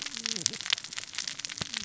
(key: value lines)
label: biophony, cascading saw
recorder: SoundTrap 600 or HydroMoth